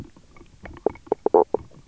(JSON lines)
{"label": "biophony, knock croak", "recorder": "SoundTrap 300"}